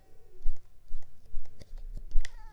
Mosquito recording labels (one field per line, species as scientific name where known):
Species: Mansonia uniformis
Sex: female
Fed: unfed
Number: one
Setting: cup